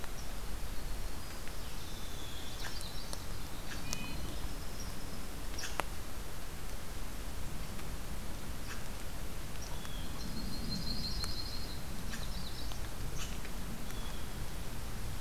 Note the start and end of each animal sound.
0.6s-5.4s: Winter Wren (Troglodytes hiemalis)
2.5s-2.8s: Red Squirrel (Tamiasciurus hudsonicus)
3.5s-3.8s: Red Squirrel (Tamiasciurus hudsonicus)
3.6s-4.2s: Red-breasted Nuthatch (Sitta canadensis)
5.5s-5.8s: Red Squirrel (Tamiasciurus hudsonicus)
8.6s-8.8s: Red Squirrel (Tamiasciurus hudsonicus)
9.8s-11.8s: Yellow-rumped Warbler (Setophaga coronata)
12.0s-12.9s: Magnolia Warbler (Setophaga magnolia)
12.0s-12.3s: Red Squirrel (Tamiasciurus hudsonicus)
13.1s-13.4s: Red Squirrel (Tamiasciurus hudsonicus)
13.8s-14.3s: Blue Jay (Cyanocitta cristata)

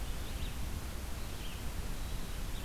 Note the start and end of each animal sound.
0.0s-2.6s: Red-eyed Vireo (Vireo olivaceus)

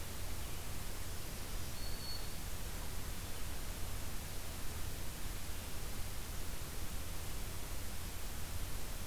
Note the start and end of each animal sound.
1.4s-2.6s: Black-throated Green Warbler (Setophaga virens)

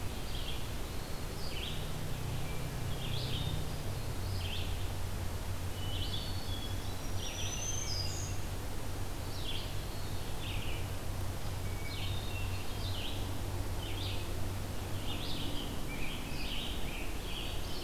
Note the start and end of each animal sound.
0.0s-17.8s: Red-eyed Vireo (Vireo olivaceus)
5.9s-7.0s: Hermit Thrush (Catharus guttatus)
6.8s-8.4s: Black-throated Green Warbler (Setophaga virens)
9.0s-10.4s: Eastern Wood-Pewee (Contopus virens)
11.5s-13.1s: Hermit Thrush (Catharus guttatus)
17.1s-17.8s: Hermit Thrush (Catharus guttatus)

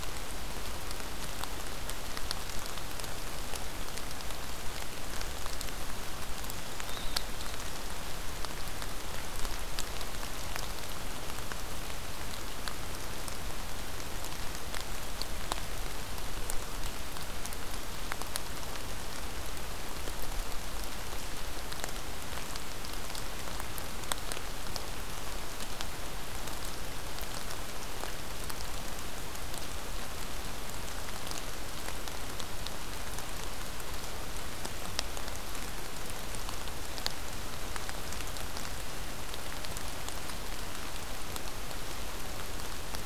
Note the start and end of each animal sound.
6.7s-7.6s: unidentified call

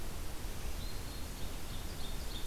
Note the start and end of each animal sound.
0.7s-1.3s: Black-throated Green Warbler (Setophaga virens)
1.1s-2.5s: Ovenbird (Seiurus aurocapilla)

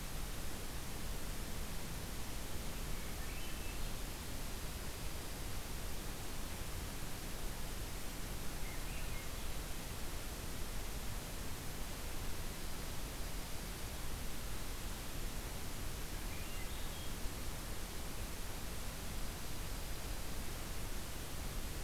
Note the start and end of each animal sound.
2.7s-4.0s: Swainson's Thrush (Catharus ustulatus)
4.2s-5.6s: Dark-eyed Junco (Junco hyemalis)
8.5s-9.5s: Swainson's Thrush (Catharus ustulatus)
12.8s-14.4s: Dark-eyed Junco (Junco hyemalis)
16.1s-17.3s: Swainson's Thrush (Catharus ustulatus)
19.0s-20.5s: Dark-eyed Junco (Junco hyemalis)

